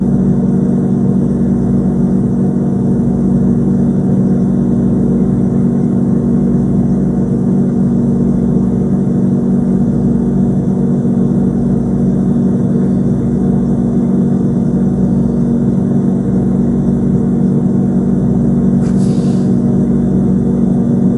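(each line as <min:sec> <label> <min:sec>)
0:00.0 The subtle, unchanging hum of a refrigerator motor. 0:21.2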